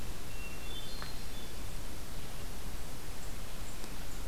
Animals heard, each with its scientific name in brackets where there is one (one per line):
Hermit Thrush (Catharus guttatus)